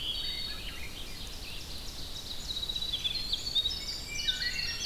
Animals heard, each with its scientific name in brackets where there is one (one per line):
Winter Wren (Troglodytes hiemalis)
Red-eyed Vireo (Vireo olivaceus)
Ovenbird (Seiurus aurocapilla)
Wood Thrush (Hylocichla mustelina)